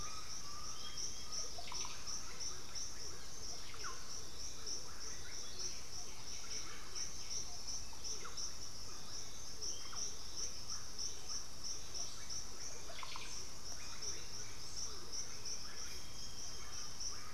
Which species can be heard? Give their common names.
Undulated Tinamou, Russet-backed Oropendola, Bluish-fronted Jacamar, Horned Screamer, White-winged Becard, Chestnut-winged Foliage-gleaner